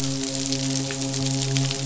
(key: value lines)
label: biophony, midshipman
recorder: SoundTrap 500